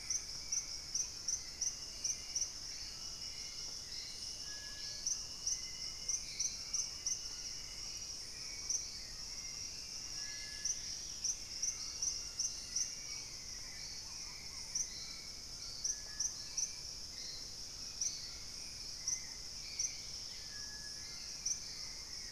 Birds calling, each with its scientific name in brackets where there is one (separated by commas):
White-throated Toucan (Ramphastos tucanus), Hauxwell's Thrush (Turdus hauxwelli), Thrush-like Wren (Campylorhynchus turdinus), Purple-throated Fruitcrow (Querula purpurata), Dusky-capped Greenlet (Pachysylvia hypoxantha)